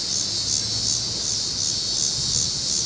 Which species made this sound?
Megatibicen pronotalis